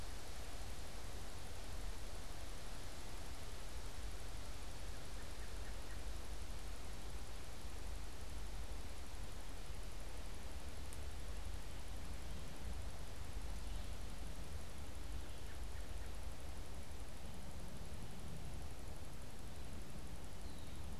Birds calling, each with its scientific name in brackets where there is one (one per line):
American Robin (Turdus migratorius)